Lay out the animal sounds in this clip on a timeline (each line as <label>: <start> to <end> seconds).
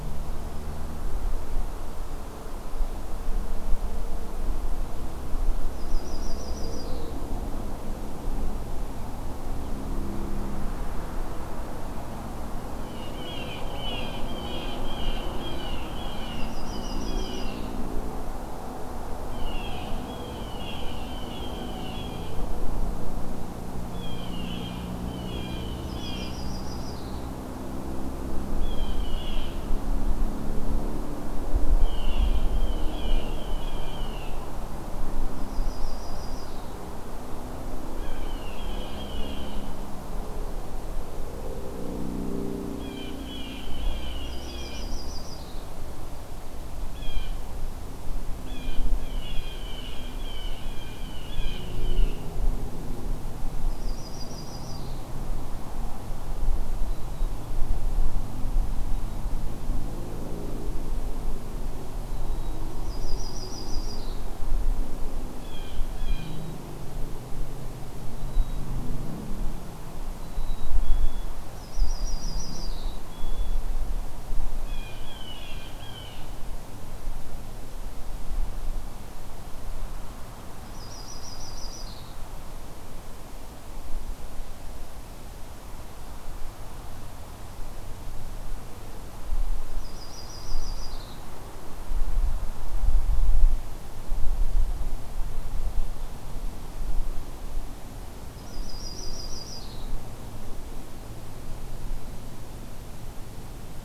Yellow-rumped Warbler (Setophaga coronata): 5.7 to 7.2 seconds
Blue Jay (Cyanocitta cristata): 12.7 to 17.5 seconds
Yellow-rumped Warbler (Setophaga coronata): 16.3 to 17.7 seconds
Blue Jay (Cyanocitta cristata): 19.3 to 22.6 seconds
Blue Jay (Cyanocitta cristata): 23.9 to 26.4 seconds
Yellow-rumped Warbler (Setophaga coronata): 25.8 to 27.3 seconds
Blue Jay (Cyanocitta cristata): 28.5 to 29.7 seconds
Blue Jay (Cyanocitta cristata): 31.7 to 34.5 seconds
Yellow-rumped Warbler (Setophaga coronata): 35.3 to 36.7 seconds
Blue Jay (Cyanocitta cristata): 37.9 to 39.8 seconds
Blue Jay (Cyanocitta cristata): 42.7 to 45.0 seconds
Yellow-rumped Warbler (Setophaga coronata): 44.1 to 45.7 seconds
Blue Jay (Cyanocitta cristata): 46.9 to 47.5 seconds
Blue Jay (Cyanocitta cristata): 48.5 to 52.2 seconds
Yellow-rumped Warbler (Setophaga coronata): 53.6 to 55.1 seconds
Black-capped Chickadee (Poecile atricapillus): 56.7 to 57.3 seconds
Black-capped Chickadee (Poecile atricapillus): 61.8 to 62.7 seconds
Yellow-rumped Warbler (Setophaga coronata): 62.6 to 64.3 seconds
Blue Jay (Cyanocitta cristata): 65.3 to 66.5 seconds
Black-capped Chickadee (Poecile atricapillus): 68.1 to 68.7 seconds
Black-capped Chickadee (Poecile atricapillus): 70.1 to 71.4 seconds
Yellow-rumped Warbler (Setophaga coronata): 71.4 to 73.0 seconds
Black-capped Chickadee (Poecile atricapillus): 72.5 to 73.6 seconds
Blue Jay (Cyanocitta cristata): 74.6 to 76.4 seconds
Yellow-rumped Warbler (Setophaga coronata): 80.6 to 82.1 seconds
Yellow-rumped Warbler (Setophaga coronata): 89.7 to 91.2 seconds
Yellow-rumped Warbler (Setophaga coronata): 98.2 to 99.9 seconds